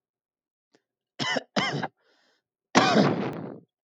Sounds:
Cough